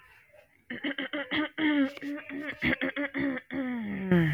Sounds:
Throat clearing